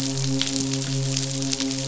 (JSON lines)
{"label": "biophony, midshipman", "recorder": "SoundTrap 500"}